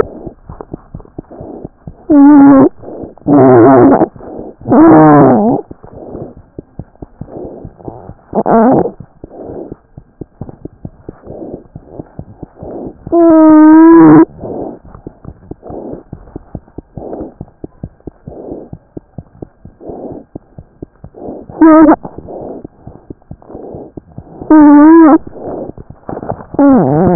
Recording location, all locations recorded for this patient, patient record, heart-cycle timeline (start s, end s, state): mitral valve (MV)
mitral valve (MV)
#Age: Infant
#Sex: Male
#Height: 68.0 cm
#Weight: 9.0 kg
#Pregnancy status: False
#Murmur: Absent
#Murmur locations: nan
#Most audible location: nan
#Systolic murmur timing: nan
#Systolic murmur shape: nan
#Systolic murmur grading: nan
#Systolic murmur pitch: nan
#Systolic murmur quality: nan
#Diastolic murmur timing: nan
#Diastolic murmur shape: nan
#Diastolic murmur grading: nan
#Diastolic murmur pitch: nan
#Diastolic murmur quality: nan
#Outcome: Normal
#Campaign: 2015 screening campaign
0.00	9.94	unannotated
9.94	10.02	S1
10.02	10.18	systole
10.18	10.26	S2
10.26	10.40	diastole
10.40	10.48	S1
10.48	10.62	systole
10.62	10.68	S2
10.68	10.82	diastole
10.82	10.92	S1
10.92	11.02	systole
11.02	11.12	S2
11.12	11.28	diastole
11.28	11.36	S1
11.36	11.50	systole
11.50	11.58	S2
11.58	11.73	diastole
11.73	11.82	S1
11.82	11.97	systole
11.97	12.05	S2
12.05	12.18	diastole
12.18	12.26	S1
12.26	12.40	systole
12.40	12.47	S2
12.47	12.61	diastole
12.61	12.69	S1
12.69	12.84	systole
12.84	12.93	S2
12.93	27.15	unannotated